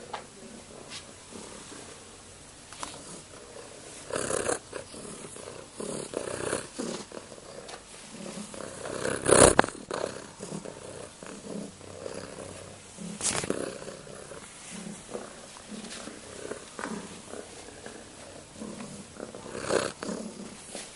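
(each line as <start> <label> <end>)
4.1 A cat is purring. 5.7
5.8 A car engine is purring. 7.3
8.2 A cat begins purring loudly and abruptly. 9.6
9.9 A cat is purring softly. 13.0
13.2 A car engine is purring. 13.9
19.1 A cat is purring. 20.5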